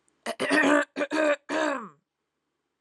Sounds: Throat clearing